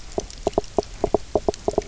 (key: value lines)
label: biophony, knock croak
recorder: SoundTrap 300